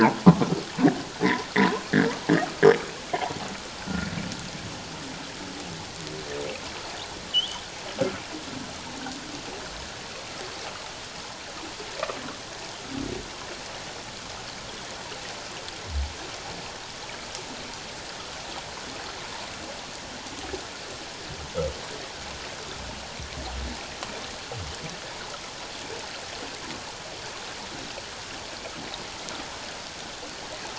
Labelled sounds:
3.8	4.1	humpback whale, 1.3 to 1.6 kHz
7.3	7.6	humpback whale, 2.8 to 3.6 kHz

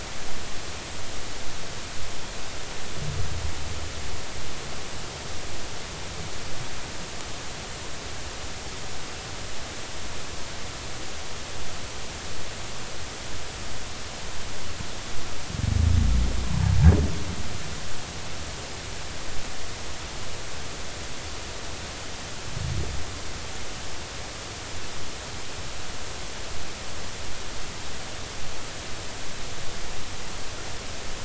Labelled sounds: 16.4	16.7	humpback whale, 0.83 to 1.1 kHz

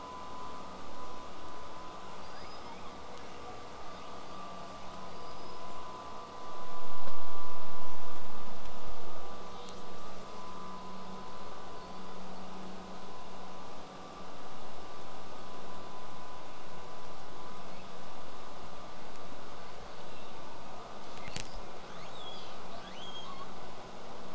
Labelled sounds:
2.2	3.0	killer whale, southern resident, L pod, call S19, 1.4 to 8.0 kHz
3.0	3.6	killer whale, southern resident, 1.4 to 5.9 kHz
3.8	4.2	killer whale, southern resident, call S08i, 1.4 to 5.3 kHz
4.6	4.8	killer whale, southern resident, buzz, 5.4 to 8.0 kHz
5.0	5.9	killer whale, southern resident, L pod, call S19, 1.3 to 8.0 kHz
9.6	10.6	killer whale, southern resident, call S10, 2.6 to 8.0 kHz
12.5	18.9	killer whale, southern resident, 7.0 to 8.0 kHz
21.2	21.7	killer whale, southern resident, 1.7 to 8.0 kHz
21.8	23.5	killer whale, southern resident, L pod, call S02iii, 0.54 to 8.0 kHz

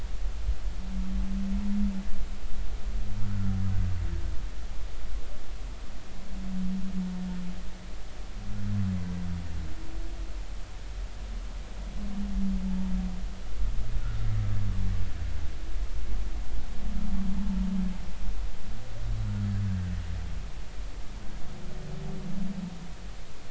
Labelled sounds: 19.2	19.5	humpback whale, 1.3 to 1.5 kHz

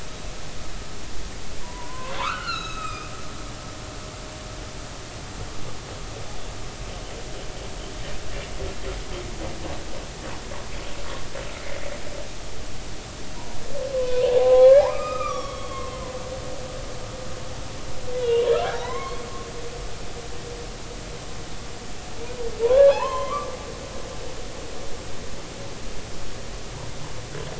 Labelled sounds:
1.6	3.1	humpback whale, 0.83 to 6.7 kHz
13.9	16.0	humpback whale, 0.80 to 5.9 kHz
18.5	19.2	humpback whale, 0.80 to 2.2 kHz
22.6	23.6	humpback whale, 0.80 to 3.5 kHz

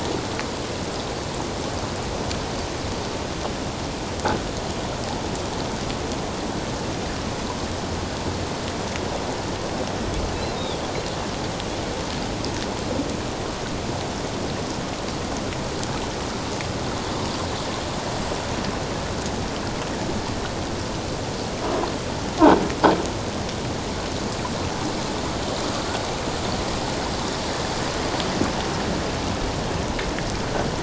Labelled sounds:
10.6	10.8	Pacific white-sided dolphin, 3.2 to 3.8 kHz

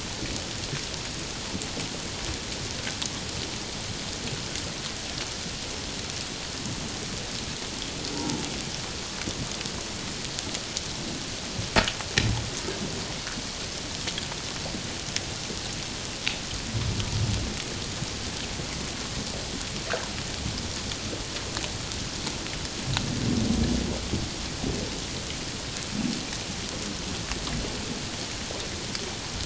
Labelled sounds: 8.1	8.4	humpback whale, 0.78 to 1.1 kHz

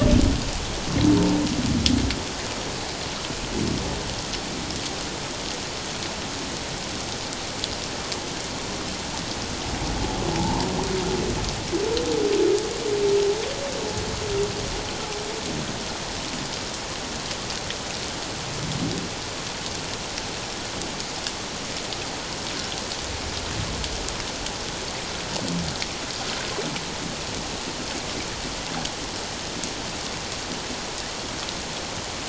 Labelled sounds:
10.4	10.7	humpback whale, 0.78 to 1.1 kHz

